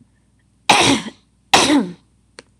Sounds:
Throat clearing